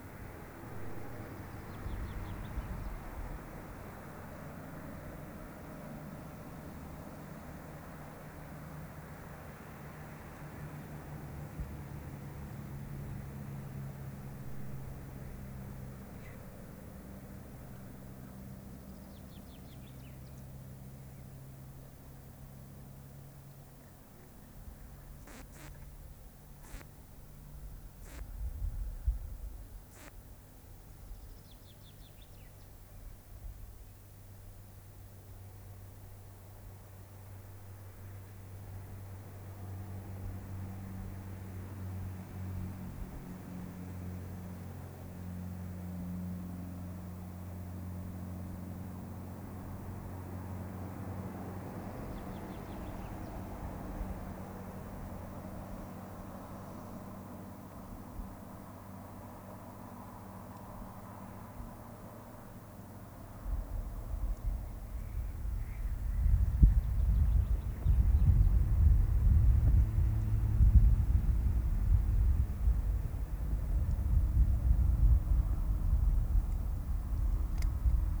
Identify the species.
Poecilimon luschani